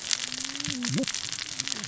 {"label": "biophony, cascading saw", "recorder": "SoundTrap 600 or HydroMoth"}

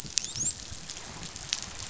{"label": "biophony, dolphin", "recorder": "SoundTrap 500"}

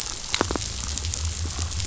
{"label": "biophony", "recorder": "SoundTrap 500"}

